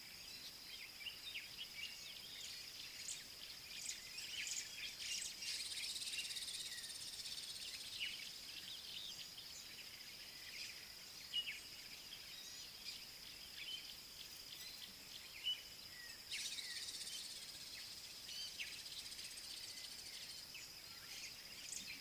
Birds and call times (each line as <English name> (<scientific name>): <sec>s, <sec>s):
Gray-headed Kingfisher (Halcyon leucocephala): 6.7s, 16.8s